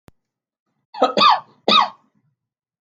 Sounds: Cough